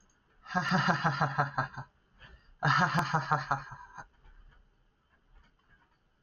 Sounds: Laughter